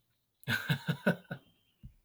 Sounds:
Laughter